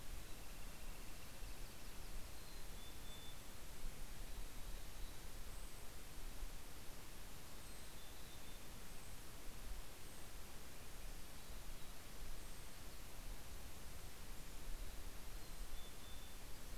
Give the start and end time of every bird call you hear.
1.0s-2.7s: Yellow-rumped Warbler (Setophaga coronata)
2.3s-5.6s: Mountain Chickadee (Poecile gambeli)
3.2s-16.3s: Brown Creeper (Certhia americana)
7.3s-9.0s: Mountain Chickadee (Poecile gambeli)
10.8s-12.4s: Mountain Chickadee (Poecile gambeli)
14.6s-16.7s: Mountain Chickadee (Poecile gambeli)

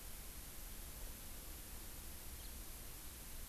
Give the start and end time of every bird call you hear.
2.4s-2.5s: House Finch (Haemorhous mexicanus)

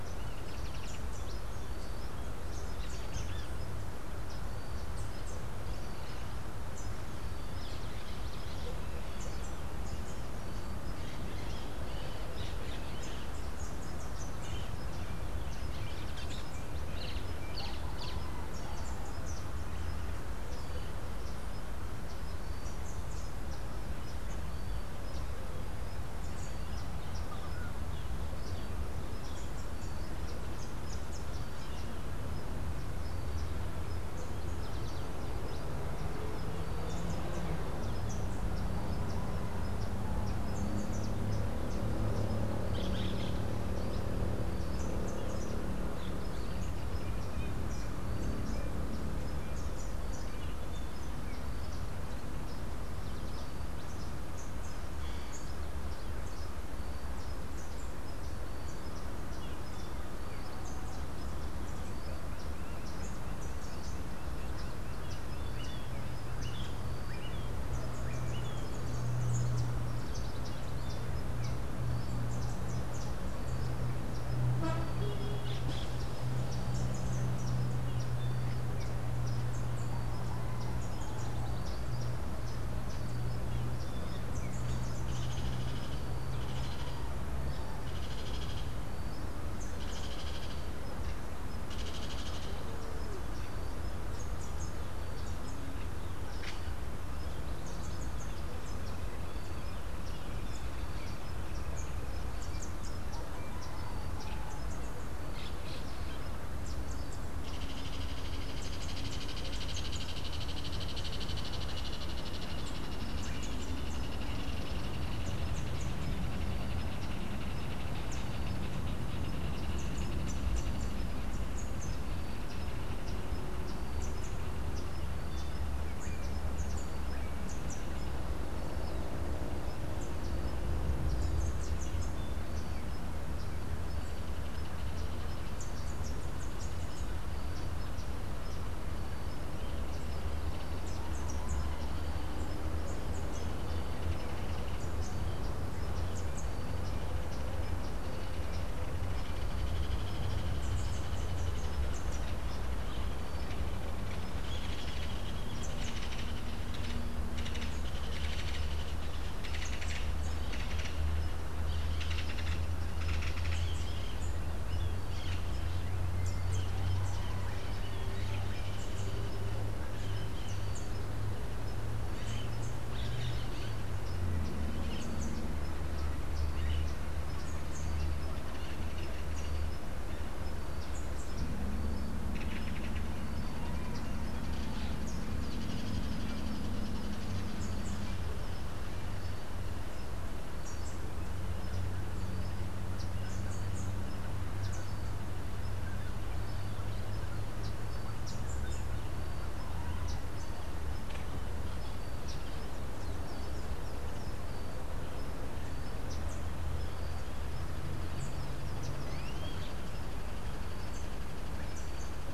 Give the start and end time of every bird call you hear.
16.9s-18.6s: Social Flycatcher (Myiozetetes similis)
42.2s-43.6s: Orange-fronted Parakeet (Eupsittula canicularis)
44.7s-59.1s: Rufous-capped Warbler (Basileuterus rufifrons)
62.3s-65.5s: Lineated Woodpecker (Dryocopus lineatus)
65.1s-68.8s: Melodious Blackbird (Dives dives)
70.0s-72.1s: Yellow Warbler (Setophaga petechia)
75.3s-76.1s: Orange-fronted Parakeet (Eupsittula canicularis)
85.1s-97.0s: Ringed Kingfisher (Megaceryle torquata)
94.1s-103.6s: Rufous-capped Warbler (Basileuterus rufifrons)
106.6s-116.0s: Rufous-capped Warbler (Basileuterus rufifrons)
107.4s-124.7s: Ringed Kingfisher (Megaceryle torquata)
119.7s-132.6s: Rufous-capped Warbler (Basileuterus rufifrons)
135.4s-148.1s: Rufous-capped Warbler (Basileuterus rufifrons)
149.1s-164.0s: Ringed Kingfisher (Megaceryle torquata)
163.6s-177.2s: Crimson-fronted Parakeet (Psittacara finschi)
182.3s-183.3s: Ringed Kingfisher (Megaceryle torquata)
185.2s-188.2s: Ringed Kingfisher (Megaceryle torquata)
201.0s-201.5s: Hoffmann's Woodpecker (Melanerpes hoffmannii)
209.0s-209.9s: Melodious Blackbird (Dives dives)

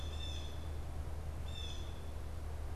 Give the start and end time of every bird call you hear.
0.0s-2.8s: Blue Jay (Cyanocitta cristata)

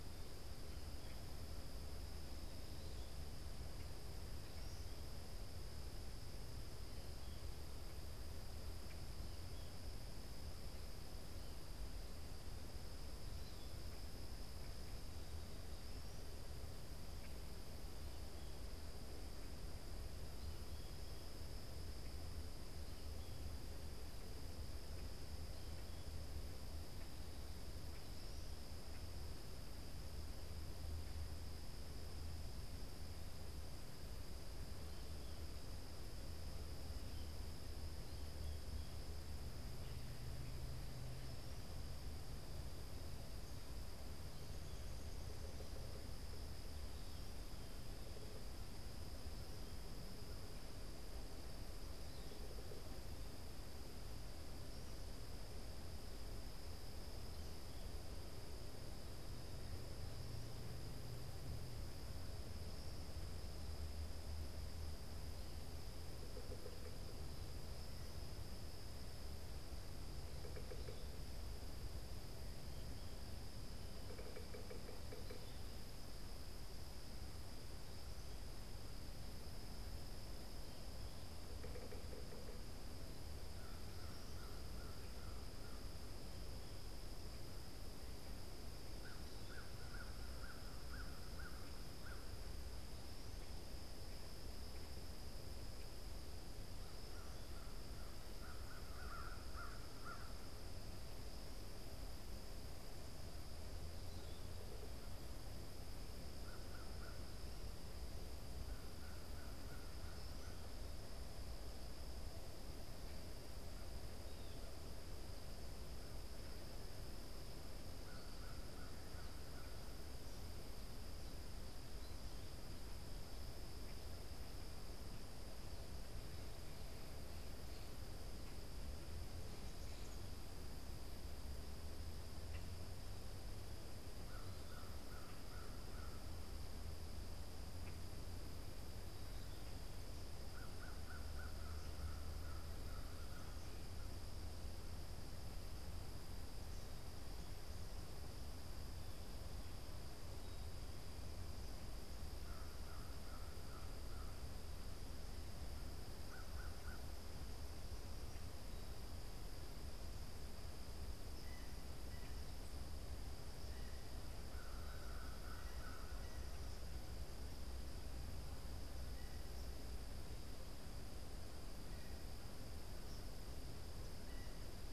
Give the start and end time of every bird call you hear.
0.0s-21.6s: American Goldfinch (Spinus tristis)
45.1s-46.2s: Yellow-bellied Sapsucker (Sphyrapicus varius)
65.9s-75.7s: Yellow-bellied Sapsucker (Sphyrapicus varius)
81.2s-83.0s: Yellow-bellied Sapsucker (Sphyrapicus varius)
83.5s-119.8s: American Crow (Corvus brachyrhynchos)
133.8s-144.2s: American Crow (Corvus brachyrhynchos)
152.1s-157.2s: American Crow (Corvus brachyrhynchos)
164.4s-166.7s: American Crow (Corvus brachyrhynchos)

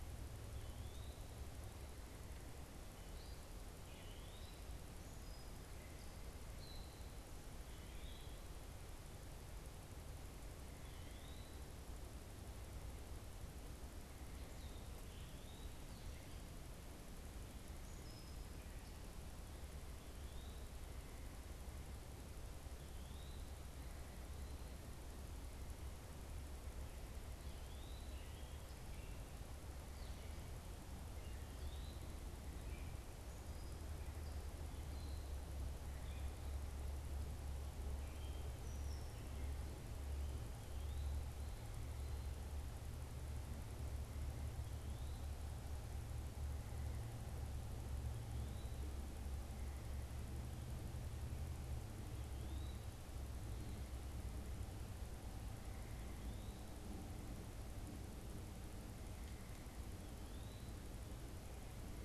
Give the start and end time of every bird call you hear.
0.0s-4.7s: Eastern Wood-Pewee (Contopus virens)
5.1s-7.0s: Gray Catbird (Dumetella carolinensis)
11.0s-15.9s: Eastern Wood-Pewee (Contopus virens)
20.2s-20.8s: Eastern Wood-Pewee (Contopus virens)
22.9s-32.2s: Eastern Wood-Pewee (Contopus virens)
32.5s-39.6s: Gray Catbird (Dumetella carolinensis)
52.3s-52.9s: Eastern Wood-Pewee (Contopus virens)

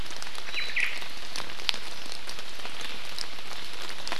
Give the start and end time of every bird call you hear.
0.4s-0.9s: Omao (Myadestes obscurus)

